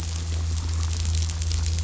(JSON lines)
{"label": "anthrophony, boat engine", "recorder": "SoundTrap 500"}